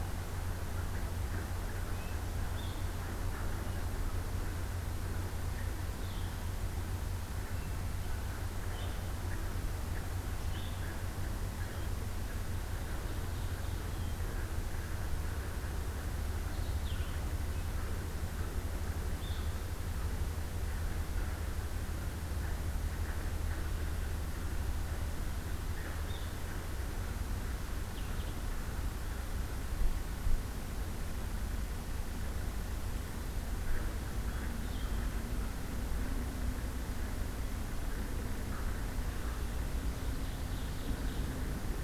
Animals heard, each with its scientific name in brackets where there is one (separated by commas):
Blue Jay (Cyanocitta cristata), Blue-headed Vireo (Vireo solitarius), Red-breasted Nuthatch (Sitta canadensis), Ovenbird (Seiurus aurocapilla), Hermit Thrush (Catharus guttatus)